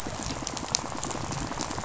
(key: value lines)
label: biophony, rattle
recorder: SoundTrap 500